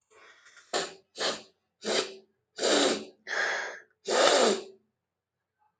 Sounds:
Sniff